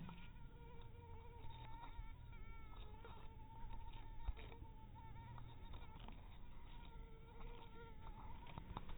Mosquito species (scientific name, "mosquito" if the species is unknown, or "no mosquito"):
mosquito